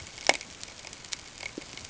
{"label": "ambient", "recorder": "HydroMoth"}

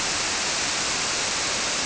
{"label": "biophony", "recorder": "SoundTrap 300"}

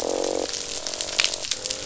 {"label": "biophony, croak", "recorder": "SoundTrap 500"}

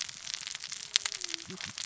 {"label": "biophony, cascading saw", "recorder": "SoundTrap 600 or HydroMoth"}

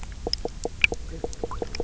{"label": "biophony, knock croak", "recorder": "SoundTrap 300"}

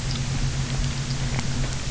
{"label": "anthrophony, boat engine", "recorder": "SoundTrap 300"}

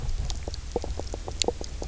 {"label": "biophony, knock croak", "recorder": "SoundTrap 300"}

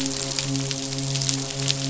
{"label": "biophony, midshipman", "recorder": "SoundTrap 500"}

